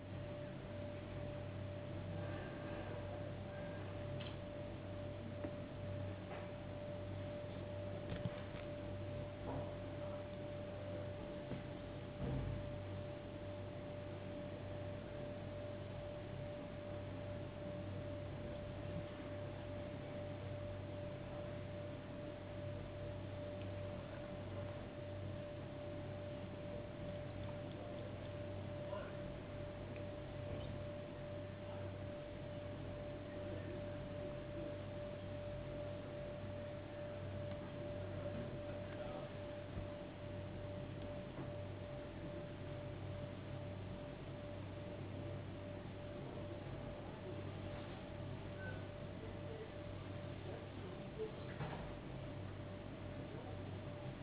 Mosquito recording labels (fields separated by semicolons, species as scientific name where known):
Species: no mosquito; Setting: insect culture